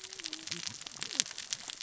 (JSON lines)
{"label": "biophony, cascading saw", "recorder": "SoundTrap 600 or HydroMoth"}